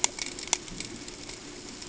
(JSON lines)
{"label": "ambient", "recorder": "HydroMoth"}